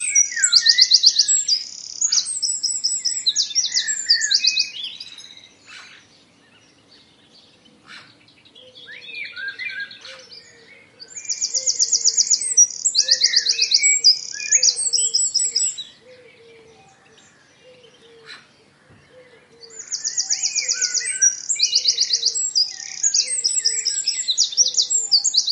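An owl hoots with deep, echoing calls spaced apart. 0:00.0 - 0:25.5
A bird chirps with high-pitched, repetitive tweets. 0:00.0 - 0:05.5
A crow caws with distinct pauses between each call. 0:05.4 - 0:10.8
A bird chirps with high-pitched, repetitive tweets. 0:11.0 - 0:16.1
A crow caws with distinct pauses between each call. 0:18.1 - 0:18.7
A bird chirps with high-pitched, repetitive tweets. 0:19.5 - 0:25.5

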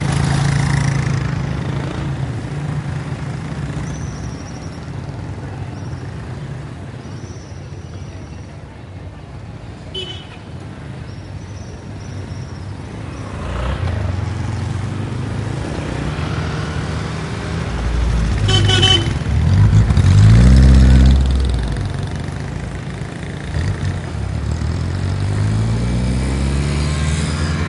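A motorcycle drives away. 0:00.0 - 0:04.3
Engine noises in the background. 0:00.0 - 0:27.7
A small bird chirps repeatedly. 0:03.7 - 0:08.6
A car horn honks in the distance. 0:09.9 - 0:10.4
A small bird chirps repeatedly. 0:11.1 - 0:13.3
A motorcycle approaches. 0:13.2 - 0:19.2
A car horn honks loudly three times. 0:18.4 - 0:19.2
A motorcycle engine revving. 0:19.3 - 0:21.8
A motorcycle accelerates and drives away. 0:23.5 - 0:27.7

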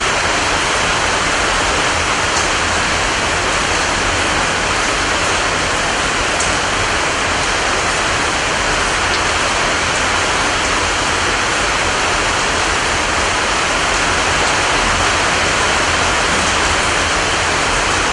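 Rainfall sounds continuously outdoors. 0:00.1 - 0:18.1

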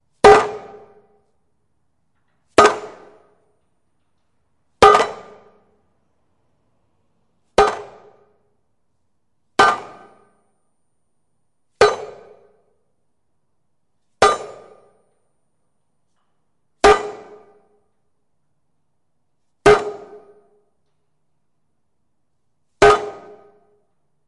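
A metal plate is hit rhythmically with some echo. 0:00.0 - 0:24.3

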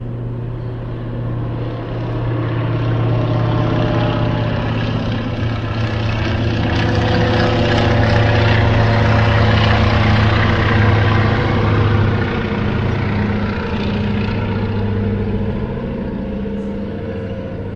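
The sound of a plane approaching gradually increases. 0:00.0 - 0:06.4
An airplane is flying overhead. 0:00.0 - 0:17.8
The sound of a plane flying nearby at the same level is continuous. 0:06.4 - 0:11.0
The plane fades away. 0:11.0 - 0:17.8

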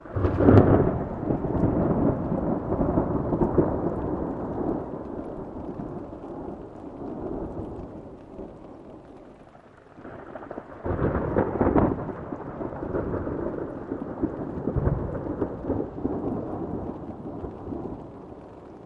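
Distant thunder rumbles continuously and slowly fades away. 0:00.0 - 0:08.5
Distant thunder rumbles continuously and slowly fades away. 0:10.1 - 0:18.9

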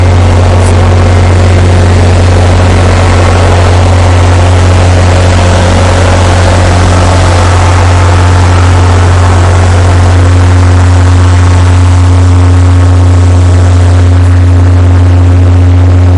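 Rocker arm of a diesel engine rattling and clicking rapidly. 0:00.0 - 0:16.2

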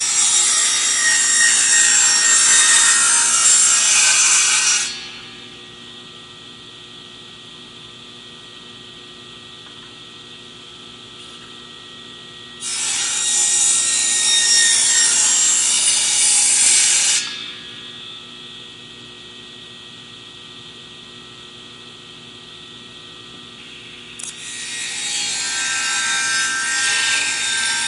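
A circular saw cuts through metal. 0:00.0 - 0:05.1
A circular saw runs idly. 0:05.1 - 0:12.4
A circular saw cuts through metal. 0:12.5 - 0:17.3
A circular saw runs idly. 0:17.3 - 0:24.2
A circular saw cuts through metal. 0:24.1 - 0:27.9

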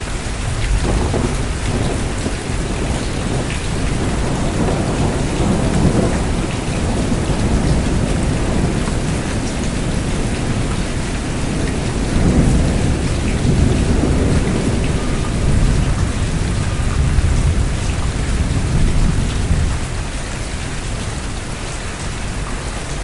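A continuous rainfall patters on the ground. 0:00.0 - 0:23.0
Thunder rolling in the distance. 0:00.9 - 0:20.9

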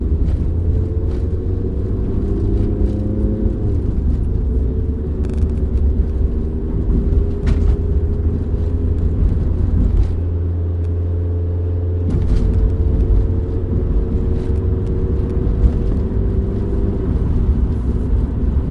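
A car drives on the road, slightly increasing its speed. 0:00.0 - 0:18.7
A car changes gears. 0:03.4 - 0:04.2
Car suspension absorbing bumps from the road. 0:07.3 - 0:07.9
Car suspension absorbing bumps on the road. 0:09.0 - 0:10.2
Car suspension absorbing a bump in the road. 0:12.0 - 0:18.7

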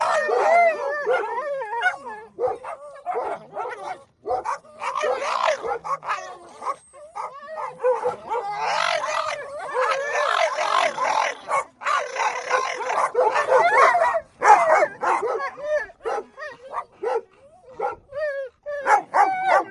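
A dog is whining. 0:00.0 - 0:03.3
Multiple dogs are barking excitedly. 0:00.0 - 0:19.7
Repeated whining sounds of a dog. 0:13.4 - 0:16.7
A dog is whining. 0:18.0 - 0:19.7

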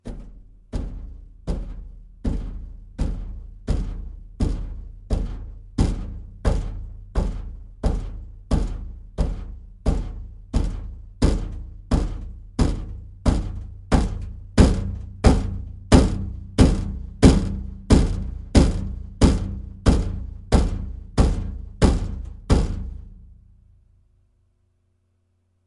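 A rhythmic thumping of a machine. 0:00.1 - 0:23.2

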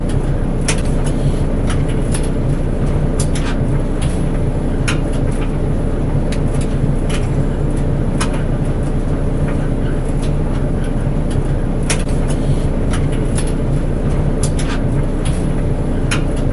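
A washing machine whirrs and spins nearby. 0:00.0 - 0:16.5

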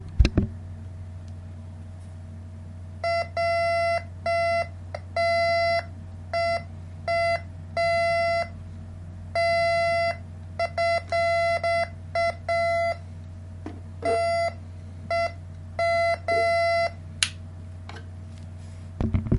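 Low and steady humming in the background. 0:00.0 - 0:19.4
Repeated electronic beeping. 0:03.0 - 0:05.9
An electronic beeping sound. 0:06.3 - 0:08.5
An electronic beep sounds once. 0:09.2 - 0:10.3
Rhythmic electronic beeping. 0:10.5 - 0:13.0
Repeated arrhythmic electronic beeping. 0:13.5 - 0:16.9
A short snapping sound. 0:17.1 - 0:17.4
The microphone is turned off. 0:18.9 - 0:19.4

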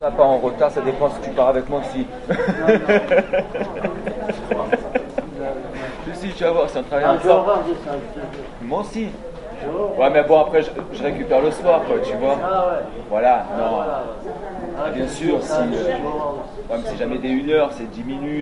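A man is speaking in French. 0:00.0 - 0:02.2
People are talking and chatting in the background. 0:00.0 - 0:18.4
A man laughs and then stops. 0:02.3 - 0:05.7
A man is speaking in French. 0:06.2 - 0:07.6
Another man is speaking in French from a distance. 0:06.9 - 0:08.6
A man is speaking in French. 0:08.6 - 0:09.2
A man is speaking in French. 0:09.9 - 0:12.4
Another man is speaking in French from a distance. 0:12.4 - 0:12.9
A man is speaking in French. 0:13.1 - 0:14.2
A man is speaking in French. 0:14.8 - 0:18.4
Another man is speaking in French from a distance. 0:15.5 - 0:16.6

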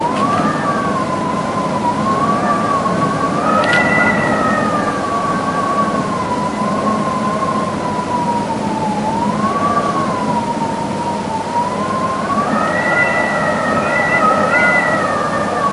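High-pitched wind grows stronger. 0:00.0 - 0:15.7

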